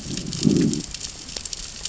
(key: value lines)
label: biophony, growl
recorder: SoundTrap 600 or HydroMoth